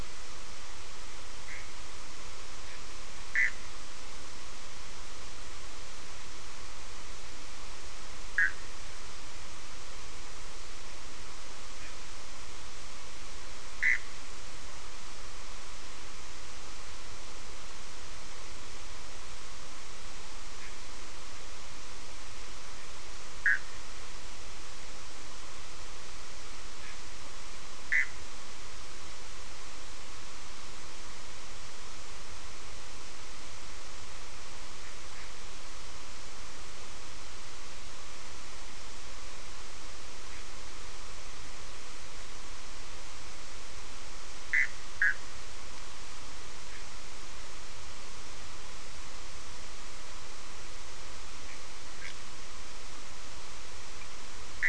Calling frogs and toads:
Bischoff's tree frog (Boana bischoffi)
5:00am

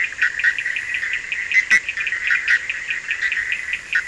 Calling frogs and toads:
Bischoff's tree frog (Boana bischoffi), Cochran's lime tree frog (Sphaenorhynchus surdus)
3:00am

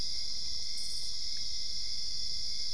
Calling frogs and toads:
none
12:30am

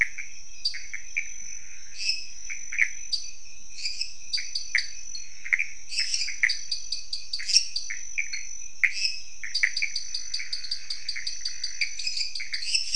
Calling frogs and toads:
Pithecopus azureus, dwarf tree frog (Dendropsophus nanus), lesser tree frog (Dendropsophus minutus)
11:15pm

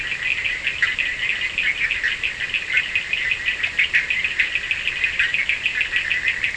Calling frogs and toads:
Bischoff's tree frog (Boana bischoffi), Cochran's lime tree frog (Sphaenorhynchus surdus)
3:30am

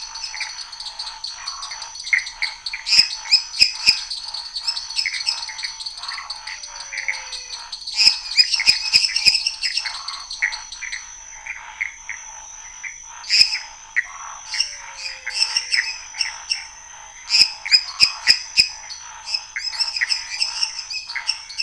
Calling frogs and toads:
dwarf tree frog (Dendropsophus nanus), Scinax fuscovarius, Pithecopus azureus, lesser tree frog (Dendropsophus minutus), menwig frog (Physalaemus albonotatus), waxy monkey tree frog (Phyllomedusa sauvagii)
10:30pm

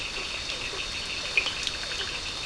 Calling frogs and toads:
blacksmith tree frog (Boana faber)
10:15pm

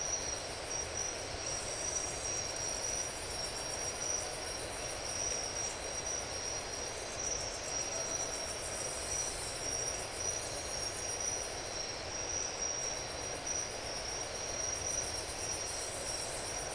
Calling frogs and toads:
none
4:30am

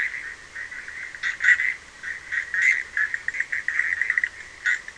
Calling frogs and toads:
Bischoff's tree frog (Boana bischoffi)
12:30am

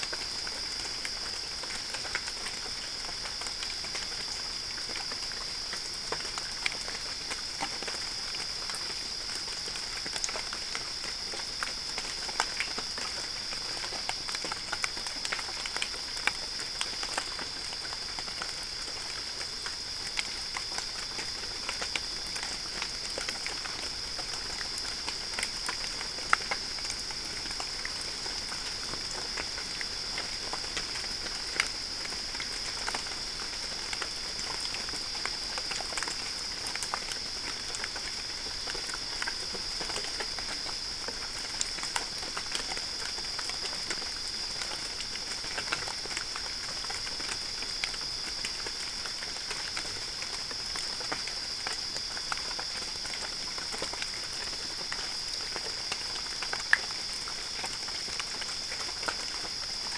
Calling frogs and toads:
none
3:15am

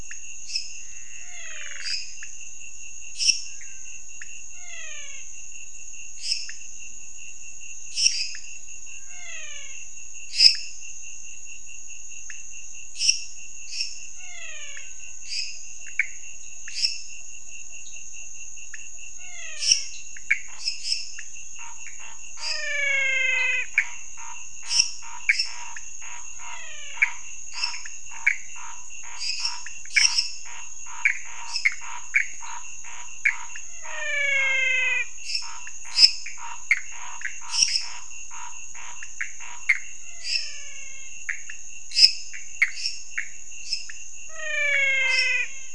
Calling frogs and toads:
lesser tree frog (Dendropsophus minutus), pointedbelly frog (Leptodactylus podicipinus), Pithecopus azureus, menwig frog (Physalaemus albonotatus), Scinax fuscovarius
11:30pm

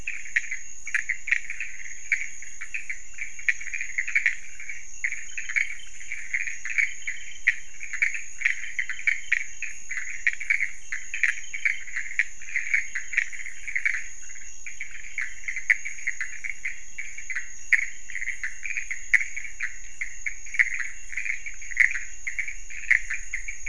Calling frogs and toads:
pointedbelly frog (Leptodactylus podicipinus), Pithecopus azureus
1:30am

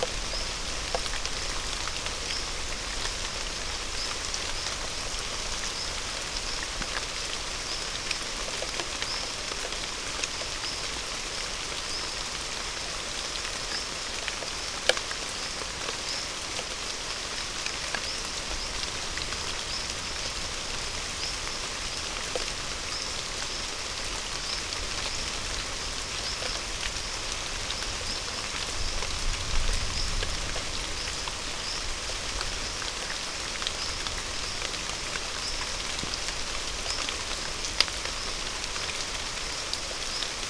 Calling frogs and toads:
none
5:30pm

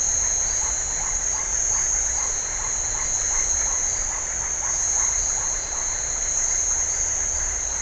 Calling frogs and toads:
Iporanga white-lipped frog (Leptodactylus notoaktites)
7:30pm

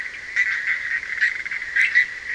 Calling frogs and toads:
Bischoff's tree frog (Boana bischoffi)
2:15am

